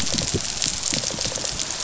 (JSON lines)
{"label": "biophony, rattle response", "recorder": "SoundTrap 500"}